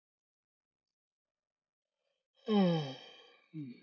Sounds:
Sigh